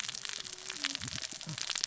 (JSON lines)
{"label": "biophony, cascading saw", "recorder": "SoundTrap 600 or HydroMoth"}